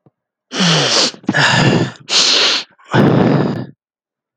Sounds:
Sniff